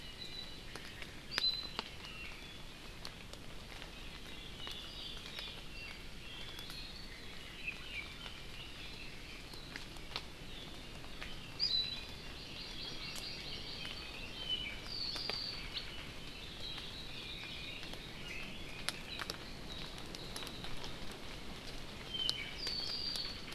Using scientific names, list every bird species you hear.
Himatione sanguinea, Drepanis coccinea, Leiothrix lutea, Chlorodrepanis virens